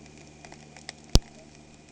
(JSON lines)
{"label": "anthrophony, boat engine", "recorder": "HydroMoth"}